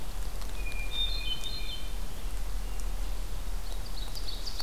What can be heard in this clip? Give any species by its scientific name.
Catharus guttatus, Seiurus aurocapilla